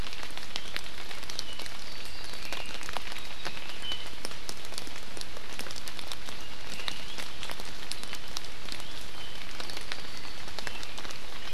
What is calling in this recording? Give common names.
Iiwi